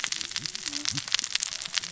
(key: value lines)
label: biophony, cascading saw
recorder: SoundTrap 600 or HydroMoth